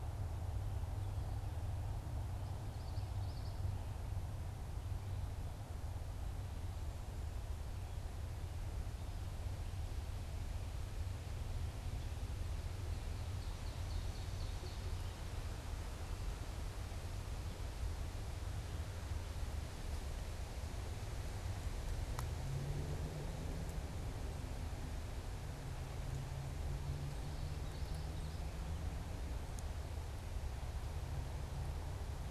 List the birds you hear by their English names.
Common Yellowthroat, Ovenbird